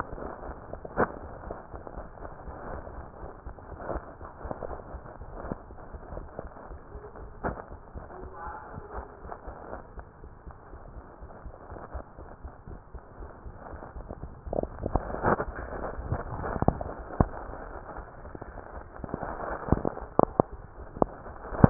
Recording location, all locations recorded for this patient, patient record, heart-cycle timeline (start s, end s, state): mitral valve (MV)
aortic valve (AV)+pulmonary valve (PV)+tricuspid valve (TV)+mitral valve (MV)
#Age: Child
#Sex: Female
#Height: 137.0 cm
#Weight: 31.4 kg
#Pregnancy status: False
#Murmur: Absent
#Murmur locations: nan
#Most audible location: nan
#Systolic murmur timing: nan
#Systolic murmur shape: nan
#Systolic murmur grading: nan
#Systolic murmur pitch: nan
#Systolic murmur quality: nan
#Diastolic murmur timing: nan
#Diastolic murmur shape: nan
#Diastolic murmur grading: nan
#Diastolic murmur pitch: nan
#Diastolic murmur quality: nan
#Outcome: Abnormal
#Campaign: 2015 screening campaign
0.00	11.70	unannotated
11.70	11.82	S1
11.82	11.94	systole
11.94	12.04	S2
12.04	12.18	diastole
12.18	12.29	S1
12.29	12.43	systole
12.43	12.52	S2
12.52	12.67	diastole
12.67	12.77	S1
12.77	12.93	systole
12.93	13.00	S2
13.00	13.19	diastole
13.19	13.30	S1
13.30	13.43	systole
13.43	13.56	S2
13.56	13.70	diastole
13.70	13.82	S1
13.82	13.95	systole
13.95	14.04	S2
14.04	14.20	diastole
14.20	14.26	S1
14.26	21.70	unannotated